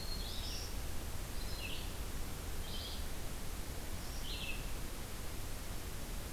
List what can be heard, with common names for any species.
Black-throated Green Warbler, Red-eyed Vireo